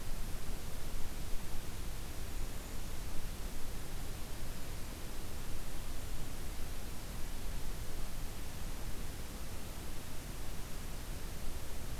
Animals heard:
Golden-crowned Kinglet (Regulus satrapa)

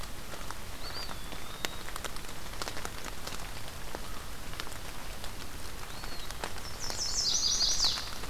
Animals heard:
Chestnut-sided Warbler (Setophaga pensylvanica), Eastern Wood-Pewee (Contopus virens)

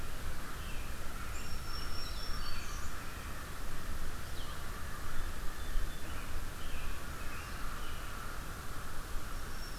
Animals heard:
Song Sparrow (Melospiza melodia), Black-throated Green Warbler (Setophaga virens), American Robin (Turdus migratorius), Red-eyed Vireo (Vireo olivaceus), American Crow (Corvus brachyrhynchos)

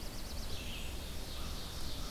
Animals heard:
Black-throated Blue Warbler (Setophaga caerulescens), Ovenbird (Seiurus aurocapilla), Red-eyed Vireo (Vireo olivaceus)

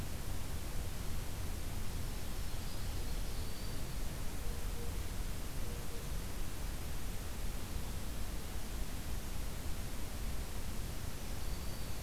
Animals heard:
Black-throated Green Warbler (Setophaga virens)

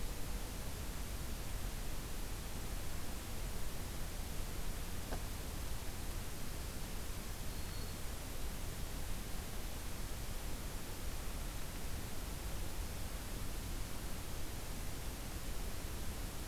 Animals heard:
Black-throated Green Warbler (Setophaga virens)

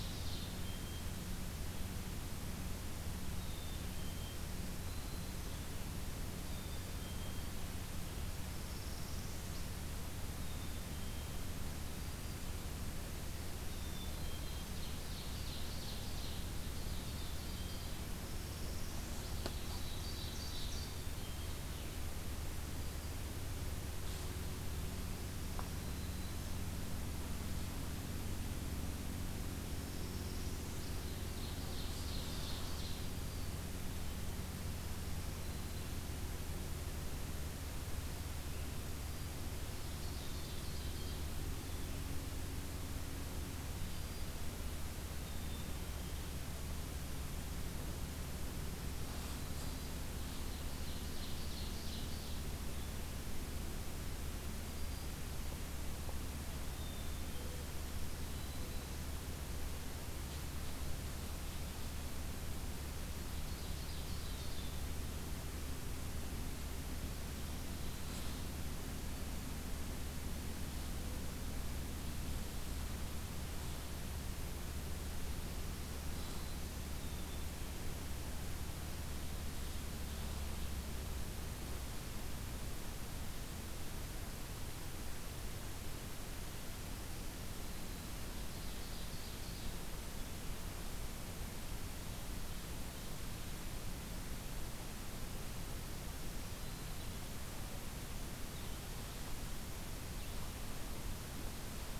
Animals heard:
Ovenbird (Seiurus aurocapilla), Black-capped Chickadee (Poecile atricapillus), Northern Parula (Setophaga americana), Black-throated Green Warbler (Setophaga virens)

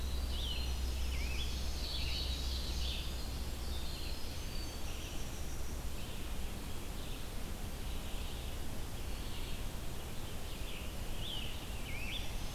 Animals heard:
Scarlet Tanager (Piranga olivacea), Black-throated Green Warbler (Setophaga virens), Winter Wren (Troglodytes hiemalis), Ovenbird (Seiurus aurocapilla), Red-eyed Vireo (Vireo olivaceus)

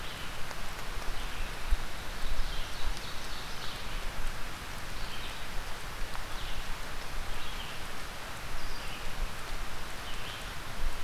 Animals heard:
Red-eyed Vireo (Vireo olivaceus), Ovenbird (Seiurus aurocapilla)

